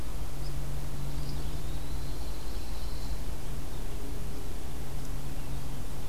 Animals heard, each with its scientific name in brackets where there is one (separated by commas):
Eastern Wood-Pewee (Contopus virens), Pine Warbler (Setophaga pinus)